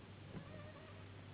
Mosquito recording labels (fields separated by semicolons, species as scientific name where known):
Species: Anopheles gambiae s.s.; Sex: female; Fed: unfed; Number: one; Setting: insect culture